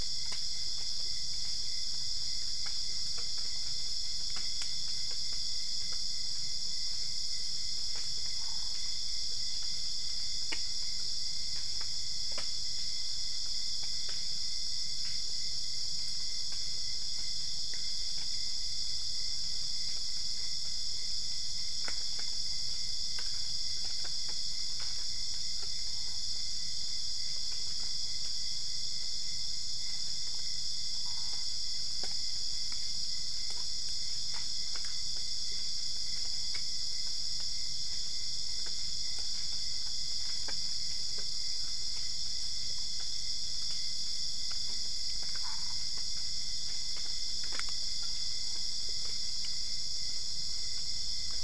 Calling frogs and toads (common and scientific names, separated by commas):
Boana albopunctata